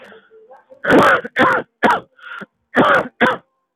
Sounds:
Cough